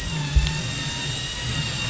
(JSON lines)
{"label": "anthrophony, boat engine", "recorder": "SoundTrap 500"}